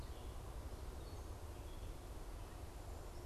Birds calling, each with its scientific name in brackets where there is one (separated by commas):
Gray Catbird (Dumetella carolinensis)